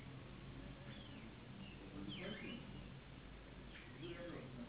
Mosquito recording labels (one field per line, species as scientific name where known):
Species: Anopheles gambiae s.s.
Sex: female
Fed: unfed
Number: one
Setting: insect culture